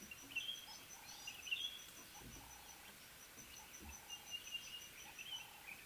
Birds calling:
Ring-necked Dove (Streptopelia capicola)

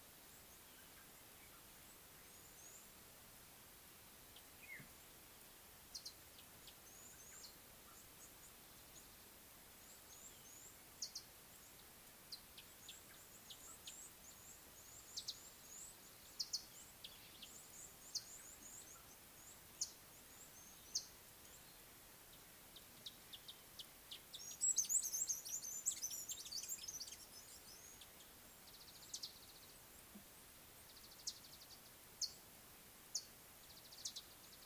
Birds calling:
Mariqua Sunbird (Cinnyris mariquensis), Red-cheeked Cordonbleu (Uraeginthus bengalus)

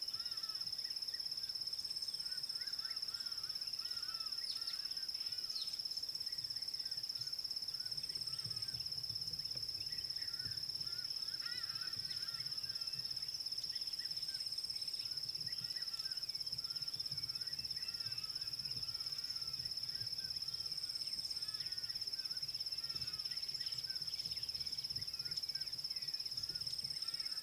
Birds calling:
Hadada Ibis (Bostrychia hagedash)

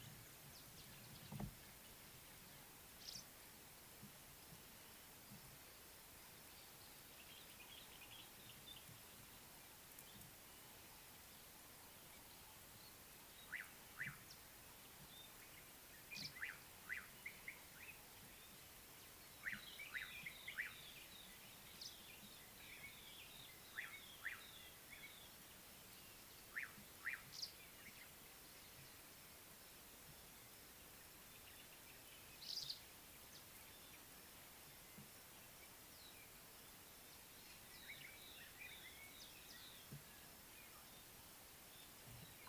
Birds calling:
Slate-colored Boubou (Laniarius funebris), White-browed Robin-Chat (Cossypha heuglini), Kenya Rufous Sparrow (Passer rufocinctus), Common Bulbul (Pycnonotus barbatus)

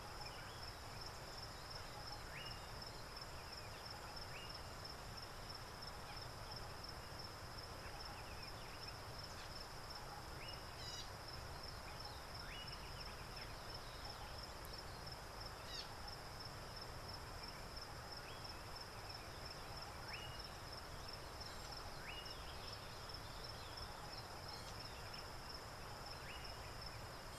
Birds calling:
Slate-colored Boubou (Laniarius funebris), Gray-backed Camaroptera (Camaroptera brevicaudata)

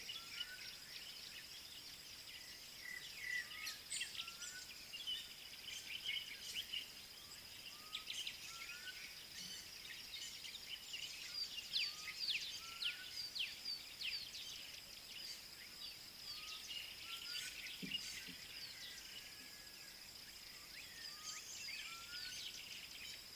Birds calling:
Black-backed Puffback (Dryoscopus cubla), African Bare-eyed Thrush (Turdus tephronotus)

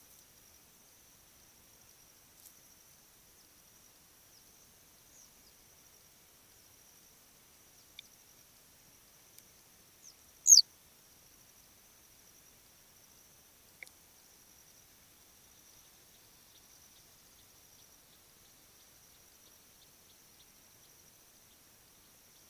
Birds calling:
Western Yellow Wagtail (Motacilla flava)

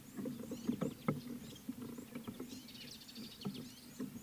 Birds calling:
Mariqua Sunbird (Cinnyris mariquensis)

